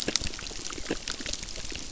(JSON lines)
{"label": "biophony, crackle", "recorder": "SoundTrap 600"}